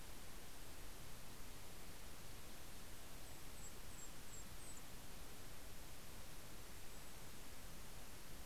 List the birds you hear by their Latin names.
Regulus satrapa